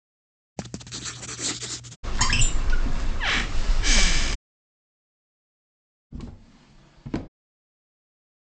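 First writing is heard. Then a wooden cupboard opens. Finally, a wooden drawer closes.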